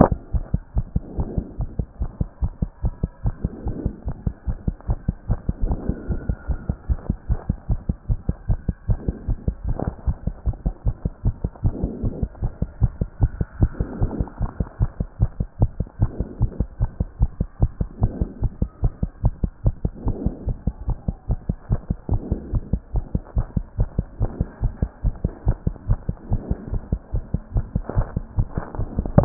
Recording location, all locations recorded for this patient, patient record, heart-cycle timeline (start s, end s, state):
pulmonary valve (PV)
aortic valve (AV)+pulmonary valve (PV)+tricuspid valve (TV)+mitral valve (MV)
#Age: Child
#Sex: Male
#Height: 124.0 cm
#Weight: 21.3 kg
#Pregnancy status: False
#Murmur: Absent
#Murmur locations: nan
#Most audible location: nan
#Systolic murmur timing: nan
#Systolic murmur shape: nan
#Systolic murmur grading: nan
#Systolic murmur pitch: nan
#Systolic murmur quality: nan
#Diastolic murmur timing: nan
#Diastolic murmur shape: nan
#Diastolic murmur grading: nan
#Diastolic murmur pitch: nan
#Diastolic murmur quality: nan
#Outcome: Abnormal
#Campaign: 2014 screening campaign
0.00	0.26	unannotated
0.26	0.34	diastole
0.34	0.44	S1
0.44	0.52	systole
0.52	0.62	S2
0.62	0.76	diastole
0.76	0.86	S1
0.86	0.94	systole
0.94	1.02	S2
1.02	1.16	diastole
1.16	1.28	S1
1.28	1.36	systole
1.36	1.44	S2
1.44	1.58	diastole
1.58	1.68	S1
1.68	1.78	systole
1.78	1.86	S2
1.86	2.00	diastole
2.00	2.10	S1
2.10	2.20	systole
2.20	2.28	S2
2.28	2.42	diastole
2.42	2.52	S1
2.52	2.60	systole
2.60	2.70	S2
2.70	2.84	diastole
2.84	2.94	S1
2.94	3.02	systole
3.02	3.10	S2
3.10	3.24	diastole
3.24	3.34	S1
3.34	3.42	systole
3.42	3.52	S2
3.52	3.66	diastole
3.66	3.76	S1
3.76	3.84	systole
3.84	3.92	S2
3.92	4.06	diastole
4.06	4.16	S1
4.16	4.26	systole
4.26	4.34	S2
4.34	4.48	diastole
4.48	4.58	S1
4.58	4.66	systole
4.66	4.74	S2
4.74	4.88	diastole
4.88	4.98	S1
4.98	5.08	systole
5.08	5.16	S2
5.16	5.30	diastole
5.30	5.40	S1
5.40	5.48	systole
5.48	5.52	S2
5.52	5.62	diastole
5.62	5.76	S1
5.76	5.88	systole
5.88	5.96	S2
5.96	6.08	diastole
6.08	6.20	S1
6.20	6.28	systole
6.28	6.36	S2
6.36	6.48	diastole
6.48	6.58	S1
6.58	6.68	systole
6.68	6.76	S2
6.76	6.88	diastole
6.88	6.98	S1
6.98	7.08	systole
7.08	7.16	S2
7.16	7.30	diastole
7.30	7.40	S1
7.40	7.48	systole
7.48	7.56	S2
7.56	7.70	diastole
7.70	7.80	S1
7.80	7.88	systole
7.88	7.96	S2
7.96	8.08	diastole
8.08	8.18	S1
8.18	8.28	systole
8.28	8.36	S2
8.36	8.48	diastole
8.48	8.58	S1
8.58	8.68	systole
8.68	8.74	S2
8.74	8.88	diastole
8.88	8.98	S1
8.98	9.06	systole
9.06	9.14	S2
9.14	9.28	diastole
9.28	9.38	S1
9.38	9.46	systole
9.46	9.54	S2
9.54	9.66	diastole
9.66	9.76	S1
9.76	9.86	systole
9.86	9.94	S2
9.94	10.06	diastole
10.06	10.16	S1
10.16	10.26	systole
10.26	10.34	S2
10.34	10.46	diastole
10.46	10.56	S1
10.56	10.64	systole
10.64	10.74	S2
10.74	10.86	diastole
10.86	10.94	S1
10.94	11.04	systole
11.04	11.12	S2
11.12	11.24	diastole
11.24	11.34	S1
11.34	11.44	systole
11.44	11.50	S2
11.50	11.64	diastole
11.64	11.74	S1
11.74	11.82	systole
11.82	11.90	S2
11.90	12.02	diastole
12.02	12.12	S1
12.12	12.22	systole
12.22	12.28	S2
12.28	12.42	diastole
12.42	12.52	S1
12.52	12.60	systole
12.60	12.68	S2
12.68	12.82	diastole
12.82	12.92	S1
12.92	13.00	systole
13.00	13.08	S2
13.08	13.20	diastole
13.20	13.30	S1
13.30	13.38	systole
13.38	13.46	S2
13.46	13.60	diastole
13.60	13.70	S1
13.70	13.78	systole
13.78	13.86	S2
13.86	14.00	diastole
14.00	14.10	S1
14.10	14.18	systole
14.18	14.26	S2
14.26	14.40	diastole
14.40	14.50	S1
14.50	14.58	systole
14.58	14.68	S2
14.68	14.80	diastole
14.80	14.90	S1
14.90	14.98	systole
14.98	15.08	S2
15.08	15.20	diastole
15.20	15.30	S1
15.30	15.38	systole
15.38	15.48	S2
15.48	15.60	diastole
15.60	15.70	S1
15.70	15.78	systole
15.78	15.86	S2
15.86	16.00	diastole
16.00	16.10	S1
16.10	16.18	systole
16.18	16.26	S2
16.26	16.40	diastole
16.40	16.50	S1
16.50	16.58	systole
16.58	16.68	S2
16.68	16.80	diastole
16.80	16.90	S1
16.90	17.00	systole
17.00	17.08	S2
17.08	17.20	diastole
17.20	17.30	S1
17.30	17.38	systole
17.38	17.48	S2
17.48	17.60	diastole
17.60	17.70	S1
17.70	17.80	systole
17.80	17.88	S2
17.88	18.00	diastole
18.00	18.12	S1
18.12	18.20	systole
18.20	18.28	S2
18.28	18.42	diastole
18.42	18.52	S1
18.52	18.60	systole
18.60	18.70	S2
18.70	18.82	diastole
18.82	18.92	S1
18.92	19.02	systole
19.02	19.10	S2
19.10	19.24	diastole
19.24	19.34	S1
19.34	19.42	systole
19.42	19.50	S2
19.50	19.64	diastole
19.64	19.74	S1
19.74	19.84	systole
19.84	19.92	S2
19.92	20.04	diastole
20.04	20.16	S1
20.16	20.24	systole
20.24	20.34	S2
20.34	20.46	diastole
20.46	20.56	S1
20.56	20.66	systole
20.66	20.74	S2
20.74	20.88	diastole
20.88	20.98	S1
20.98	21.06	systole
21.06	21.16	S2
21.16	21.28	diastole
21.28	21.38	S1
21.38	21.48	systole
21.48	21.56	S2
21.56	21.70	diastole
21.70	21.80	S1
21.80	21.88	systole
21.88	21.96	S2
21.96	22.10	diastole
22.10	22.22	S1
22.22	22.30	systole
22.30	22.40	S2
22.40	22.52	diastole
22.52	22.62	S1
22.62	22.72	systole
22.72	22.80	S2
22.80	22.94	diastole
22.94	23.04	S1
23.04	23.14	systole
23.14	23.22	S2
23.22	23.36	diastole
23.36	23.46	S1
23.46	23.56	systole
23.56	23.64	S2
23.64	23.78	diastole
23.78	23.88	S1
23.88	23.96	systole
23.96	24.06	S2
24.06	24.20	diastole
24.20	24.30	S1
24.30	24.40	systole
24.40	24.48	S2
24.48	24.62	diastole
24.62	24.72	S1
24.72	24.82	systole
24.82	24.90	S2
24.90	25.04	diastole
25.04	25.14	S1
25.14	25.24	systole
25.24	25.32	S2
25.32	25.46	diastole
25.46	25.56	S1
25.56	25.66	systole
25.66	25.74	S2
25.74	25.88	diastole
25.88	25.98	S1
25.98	26.08	systole
26.08	26.16	S2
26.16	26.30	diastole
26.30	26.42	S1
26.42	26.50	systole
26.50	26.58	S2
26.58	26.72	diastole
26.72	26.82	S1
26.82	26.92	systole
26.92	27.00	S2
27.00	27.14	diastole
27.14	27.24	S1
27.24	27.32	systole
27.32	27.42	S2
27.42	27.54	diastole
27.54	27.66	S1
27.66	27.74	systole
27.74	27.84	S2
27.84	27.96	diastole
27.96	29.25	unannotated